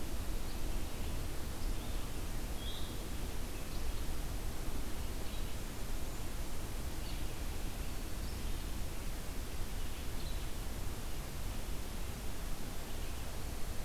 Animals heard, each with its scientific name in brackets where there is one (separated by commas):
Red-eyed Vireo (Vireo olivaceus), Blue-headed Vireo (Vireo solitarius)